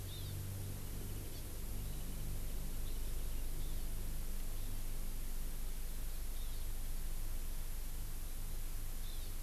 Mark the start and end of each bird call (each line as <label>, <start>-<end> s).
Hawaii Amakihi (Chlorodrepanis virens), 0.1-0.3 s
Hawaii Amakihi (Chlorodrepanis virens), 6.4-6.6 s
Hawaii Amakihi (Chlorodrepanis virens), 9.0-9.3 s